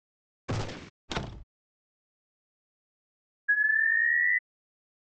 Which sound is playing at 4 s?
alarm